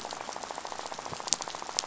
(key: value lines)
label: biophony, rattle
recorder: SoundTrap 500